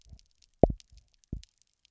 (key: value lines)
label: biophony, double pulse
recorder: SoundTrap 300